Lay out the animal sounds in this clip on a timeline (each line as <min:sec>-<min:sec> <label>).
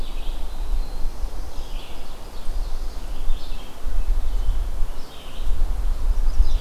0:00.0-0:01.1 Eastern Wood-Pewee (Contopus virens)
0:00.0-0:06.6 Red-eyed Vireo (Vireo olivaceus)
0:00.6-0:01.9 Black-throated Blue Warbler (Setophaga caerulescens)
0:01.7-0:03.1 Ovenbird (Seiurus aurocapilla)
0:05.9-0:06.6 Chestnut-sided Warbler (Setophaga pensylvanica)